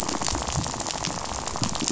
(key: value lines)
label: biophony, rattle
recorder: SoundTrap 500